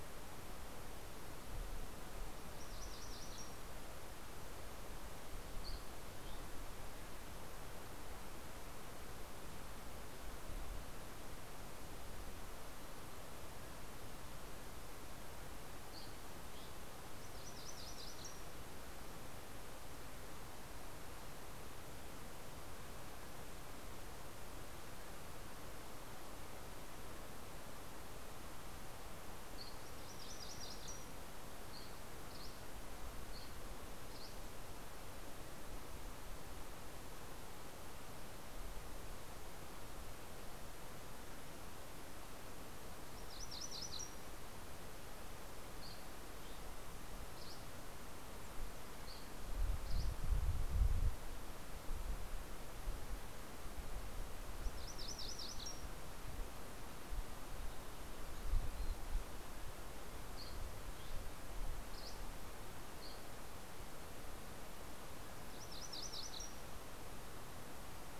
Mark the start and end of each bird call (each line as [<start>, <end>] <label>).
[2.00, 3.90] MacGillivray's Warbler (Geothlypis tolmiei)
[5.30, 7.00] Dusky Flycatcher (Empidonax oberholseri)
[15.40, 17.20] Dusky Flycatcher (Empidonax oberholseri)
[16.80, 19.20] MacGillivray's Warbler (Geothlypis tolmiei)
[31.60, 34.90] Dusky Flycatcher (Empidonax oberholseri)
[42.30, 44.70] MacGillivray's Warbler (Geothlypis tolmiei)
[45.70, 50.60] Dusky Flycatcher (Empidonax oberholseri)
[54.00, 56.30] MacGillivray's Warbler (Geothlypis tolmiei)
[58.40, 64.00] Dusky Flycatcher (Empidonax oberholseri)
[64.80, 67.20] MacGillivray's Warbler (Geothlypis tolmiei)